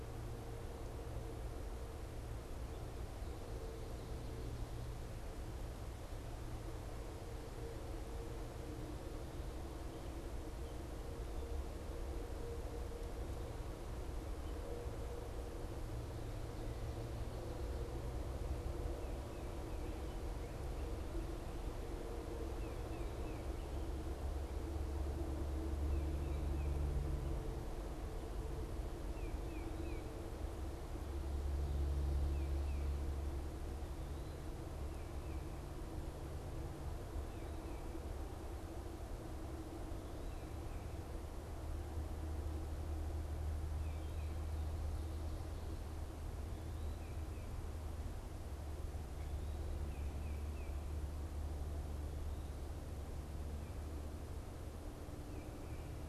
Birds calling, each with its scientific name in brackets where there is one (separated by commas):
Tufted Titmouse (Baeolophus bicolor)